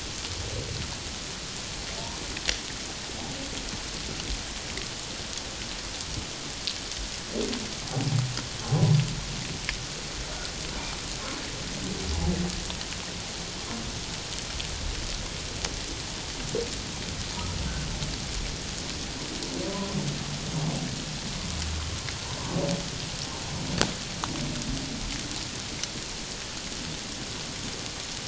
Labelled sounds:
8.6	8.9	humpback whale, 0.94 to 1.1 kHz
19.7	20.0	humpback whale, 0.94 to 1.1 kHz

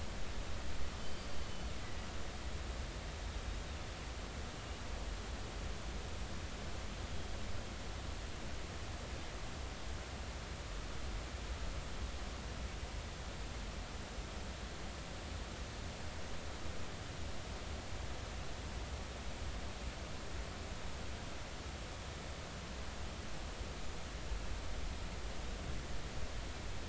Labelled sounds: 1.0	1.3	killer whale, northern resident, G clan, GG subclan, call N23ii, 4.5 to 4.8 kHz
1.8	2.1	killer whale, northern resident, G clan, GG subclan, call N23ii, 1.9 to 2.0 kHz
4.6	4.8	killer whale, 2.8 to 2.9 kHz

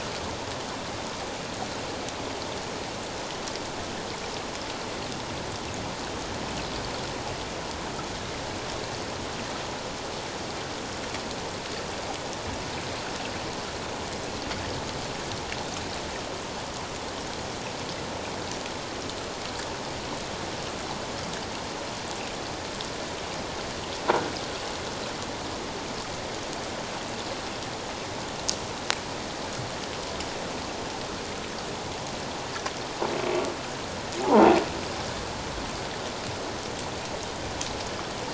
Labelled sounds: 24.1	24.3	croaking sound likely from a nearby submerged object, 1.3 to 1.6 kHz

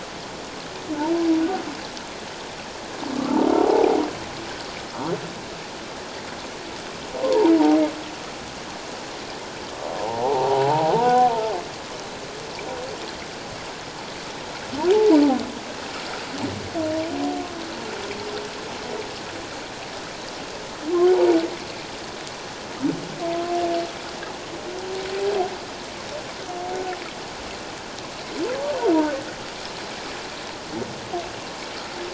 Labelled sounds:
3.6	4.0	humpback whale, 0.78 to 0.97 kHz
7.2	7.5	humpback whale, 0.78 to 1.1 kHz
10.0	11.3	humpback whale, 0.78 to 1.1 kHz
21.0	21.4	humpback whale, 0.78 to 0.97 kHz
26.7	27.0	humpback whale, 1.3 to 1.5 kHz

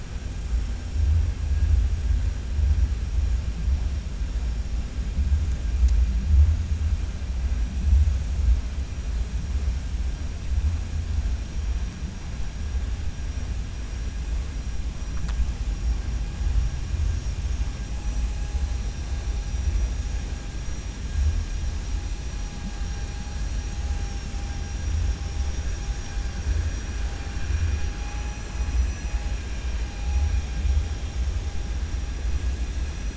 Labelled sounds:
23.9	24.4	vessel noise, 4.8 to 7.2 kHz
27.6	29.2	vessel noise, 4.9 to 7.6 kHz

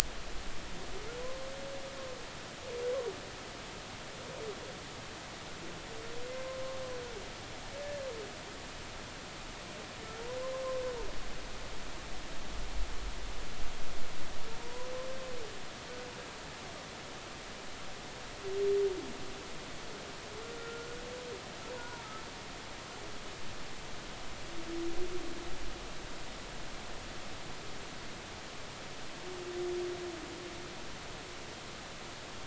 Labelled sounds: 10.4	10.8	humpback whale, 0.99 to 1.2 kHz
14.6	14.9	humpback whale, 0.93 to 1.1 kHz
20.6	21.0	humpback whale, 1.3 to 1.5 kHz
21.7	22.0	humpback whale, 0.90 to 1.5 kHz

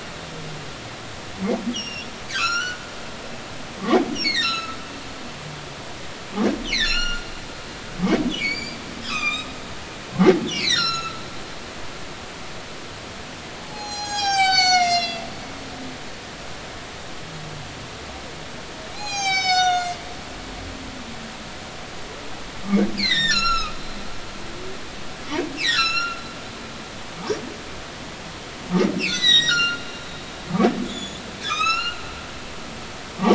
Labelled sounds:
1.7	2.8	humpback whale, 1.1 to 7.3 kHz
4.2	4.8	humpback whale, 1.2 to 6.9 kHz
6.7	7.3	humpback whale, 1.3 to 7.2 kHz
8.4	9.5	humpback whale, 1.1 to 7.7 kHz
10.5	12.1	humpback whale, 1.2 to 8.0 kHz
13.6	15.3	humpback whale, 0.80 to 8.0 kHz
18.9	20.0	humpback whale, 0.80 to 8.0 kHz
22.9	23.7	humpback whale, 1.2 to 7.6 kHz
25.6	26.2	humpback whale, 1.3 to 8.0 kHz
29.0	29.8	humpback whale, 1.3 to 8.0 kHz
30.9	32.0	humpback whale, 1.1 to 7.2 kHz

